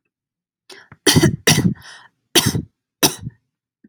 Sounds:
Cough